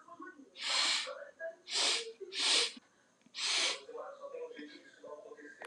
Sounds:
Sniff